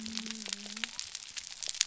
{"label": "biophony", "recorder": "SoundTrap 300"}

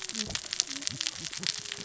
{"label": "biophony, cascading saw", "recorder": "SoundTrap 600 or HydroMoth"}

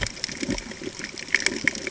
{"label": "ambient", "recorder": "HydroMoth"}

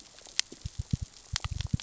{"label": "biophony, knock", "recorder": "SoundTrap 600 or HydroMoth"}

